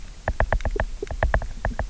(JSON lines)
{"label": "biophony, knock", "recorder": "SoundTrap 300"}